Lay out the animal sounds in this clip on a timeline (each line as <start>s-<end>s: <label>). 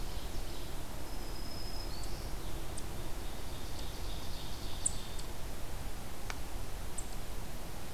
0.0s-0.9s: Ovenbird (Seiurus aurocapilla)
0.0s-7.1s: Eastern Chipmunk (Tamias striatus)
0.2s-2.7s: Black-throated Green Warbler (Setophaga virens)
2.8s-5.6s: Ovenbird (Seiurus aurocapilla)